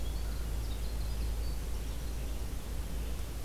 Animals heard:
Red-eyed Vireo (Vireo olivaceus), Winter Wren (Troglodytes hiemalis), American Crow (Corvus brachyrhynchos)

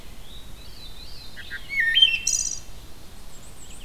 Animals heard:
Red-eyed Vireo (Vireo olivaceus), Black-and-white Warbler (Mniotilta varia), Veery (Catharus fuscescens), Wood Thrush (Hylocichla mustelina)

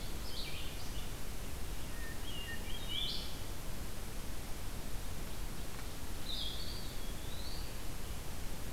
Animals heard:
Hermit Thrush (Catharus guttatus), Red-eyed Vireo (Vireo olivaceus), Eastern Wood-Pewee (Contopus virens)

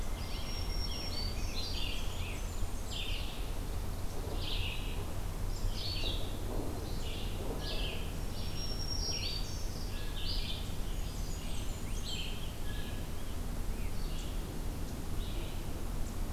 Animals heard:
Blue Jay (Cyanocitta cristata), Black-throated Green Warbler (Setophaga virens), Blackburnian Warbler (Setophaga fusca), Red-eyed Vireo (Vireo olivaceus)

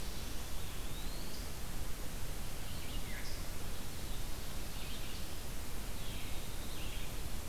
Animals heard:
Eastern Wood-Pewee (Contopus virens), Black-throated Blue Warbler (Setophaga caerulescens), Red-eyed Vireo (Vireo olivaceus)

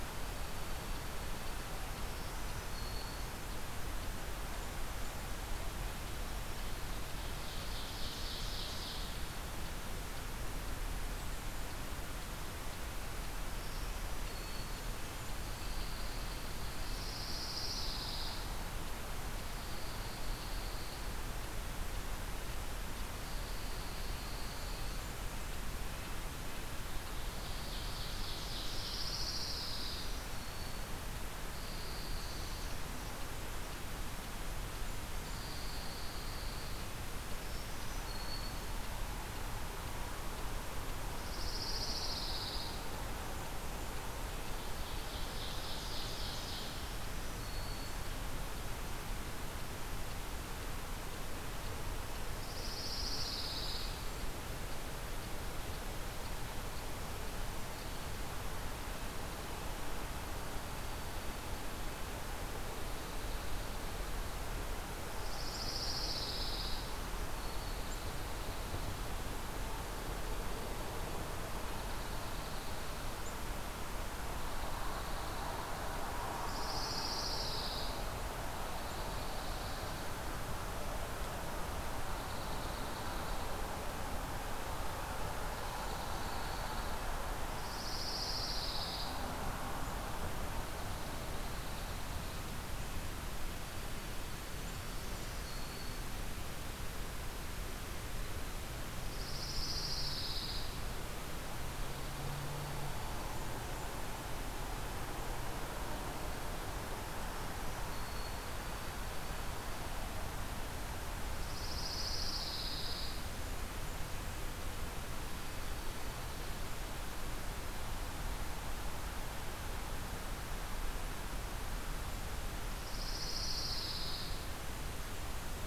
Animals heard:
Pine Warbler (Setophaga pinus), Dark-eyed Junco (Junco hyemalis), Black-throated Green Warbler (Setophaga virens), Ovenbird (Seiurus aurocapilla)

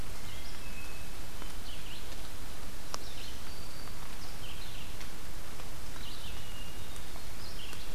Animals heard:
Black-throated Green Warbler (Setophaga virens), Red-eyed Vireo (Vireo olivaceus), Hermit Thrush (Catharus guttatus)

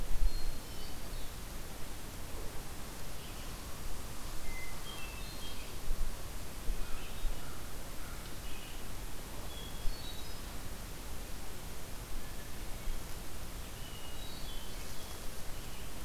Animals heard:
Hermit Thrush (Catharus guttatus), American Crow (Corvus brachyrhynchos)

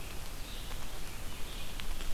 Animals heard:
Red-eyed Vireo (Vireo olivaceus)

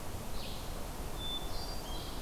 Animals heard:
Hermit Thrush (Catharus guttatus), Red-eyed Vireo (Vireo olivaceus)

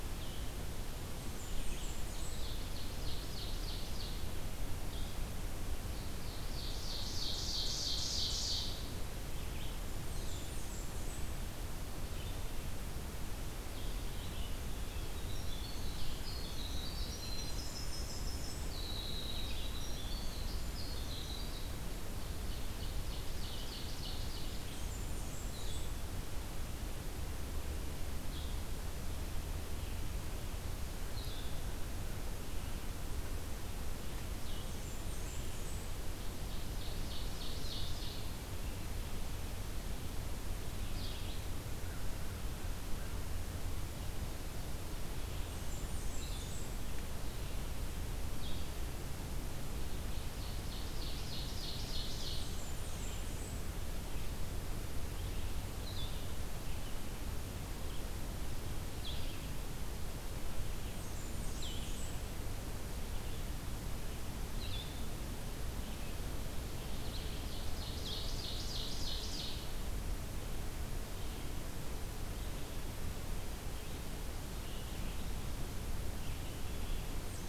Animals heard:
Ovenbird (Seiurus aurocapilla), Red-eyed Vireo (Vireo olivaceus), Blackburnian Warbler (Setophaga fusca), Blue-headed Vireo (Vireo solitarius), Winter Wren (Troglodytes hiemalis)

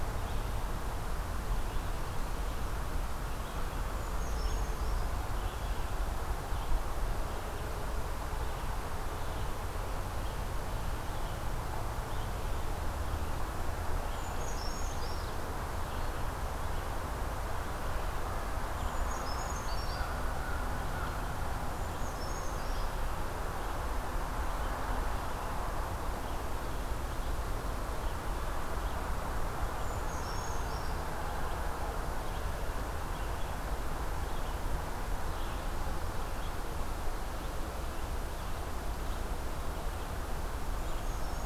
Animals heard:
Red-eyed Vireo (Vireo olivaceus), Brown Creeper (Certhia americana)

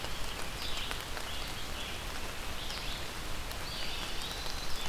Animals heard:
Red-eyed Vireo (Vireo olivaceus), Eastern Wood-Pewee (Contopus virens)

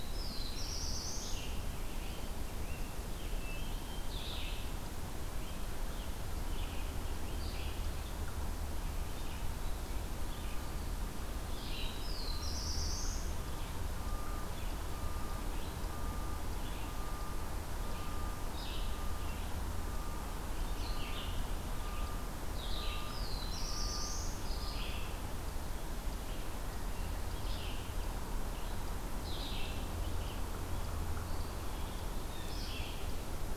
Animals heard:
Red-eyed Vireo (Vireo olivaceus), Black-throated Blue Warbler (Setophaga caerulescens), Blue Jay (Cyanocitta cristata), Rose-breasted Grosbeak (Pheucticus ludovicianus)

